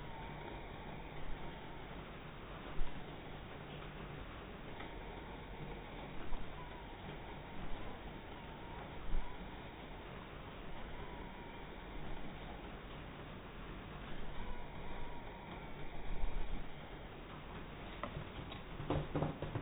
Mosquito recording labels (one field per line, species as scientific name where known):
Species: mosquito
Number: one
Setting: cup